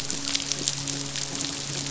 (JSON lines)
{"label": "biophony, midshipman", "recorder": "SoundTrap 500"}